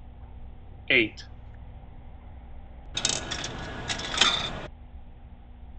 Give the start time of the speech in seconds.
0.9 s